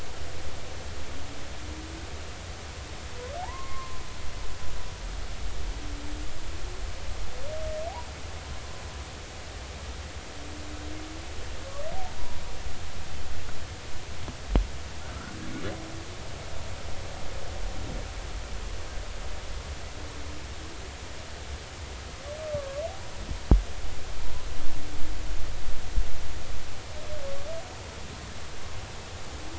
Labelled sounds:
3.4	4.0	humpback whale, 0.80 to 1.1 kHz
12.2	12.4	humpback whale, 0.93 to 1.0 kHz
22.5	22.8	humpback whale, 0.99 to 1.2 kHz

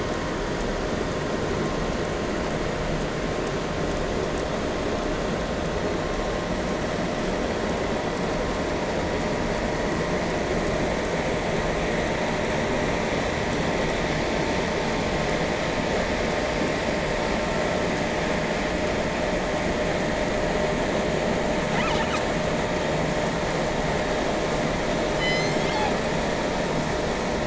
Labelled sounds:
25.1	26.0	killer whale, southern resident, 0.83 to 7.5 kHz

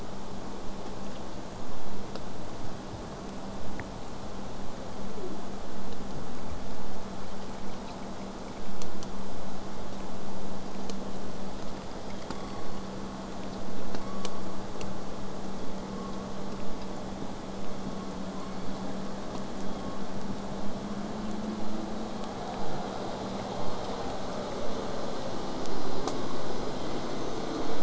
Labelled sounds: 12.3	13.0	killer whale, southern resident, J pod, 0.89 to 4.6 kHz
14.0	14.5	killer whale, southern resident, J pod, 0.85 to 6.0 kHz
15.6	16.2	killer whale, southern resident, J pod, 0.66 to 3.7 kHz
17.8	18.9	killer whale, southern resident, J pod, 0.80 to 4.7 kHz
19.6	20.1	killer whale, southern resident, J pod, 0.85 to 3.5 kHz

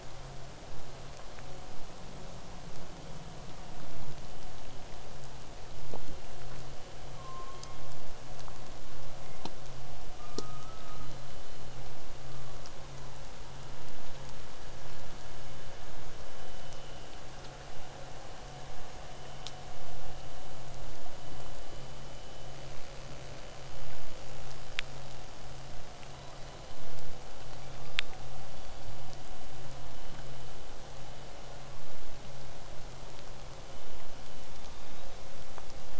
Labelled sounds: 7.2	8.1	killer whale, southern resident, 0.89 to 1.3 kHz
10.2	11.1	killer whale, southern resident, 1.1 to 1.5 kHz
26.1	26.9	killer whale, southern resident, 3.7 to 4.2 kHz
34.5	35.2	killer whale, southern resident, 2.3 to 5.0 kHz

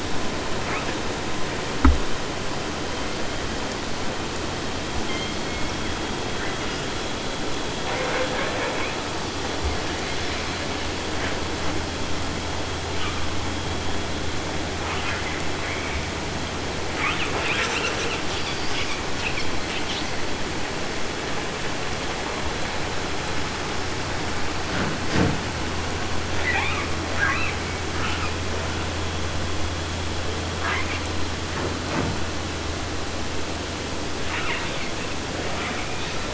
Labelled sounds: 0.6	1.0	killer whale, 0.10 to 3.5 kHz
5.0	6.1	killer whale, southern resident, J pod, call S01, 0.50 to 5.3 kHz
6.4	7.1	killer whale, 0.49 to 6.3 kHz
7.8	9.0	killer whale, 0.30 to 3.0 kHz
12.9	13.2	killer whale, 0.37 to 3.7 kHz
14.8	16.1	killer whale, 0.50 to 3.3 kHz
16.9	20.2	killer whale, 0.50 to 8.0 kHz
26.4	28.4	killer whale, 0.50 to 5.5 kHz
30.6	31.0	killer whale, 0.51 to 4.7 kHz
34.2	34.9	killer whale, 0.50 to 4.7 kHz
35.5	36.3	killer whale, 0.60 to 6.0 kHz

